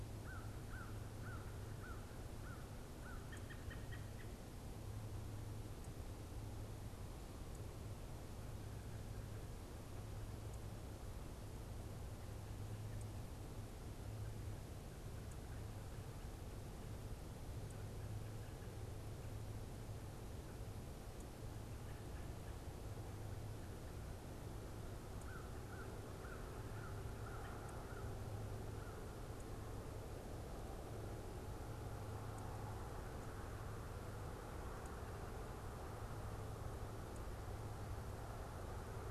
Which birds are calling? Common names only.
American Crow, American Robin